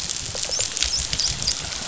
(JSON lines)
{"label": "biophony", "recorder": "SoundTrap 500"}
{"label": "biophony, dolphin", "recorder": "SoundTrap 500"}